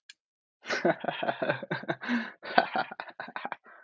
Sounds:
Laughter